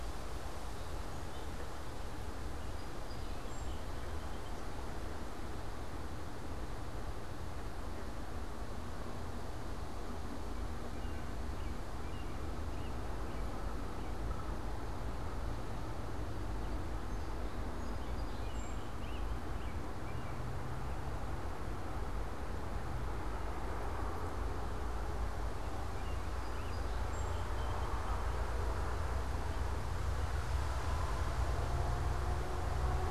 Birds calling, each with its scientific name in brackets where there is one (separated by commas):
Song Sparrow (Melospiza melodia), American Robin (Turdus migratorius)